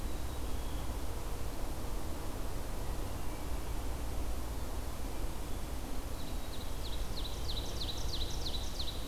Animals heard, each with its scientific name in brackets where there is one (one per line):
Hermit Thrush (Catharus guttatus)
Ovenbird (Seiurus aurocapilla)
Black-capped Chickadee (Poecile atricapillus)